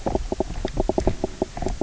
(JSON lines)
{"label": "biophony, knock croak", "recorder": "SoundTrap 300"}